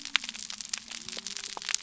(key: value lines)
label: biophony
recorder: SoundTrap 300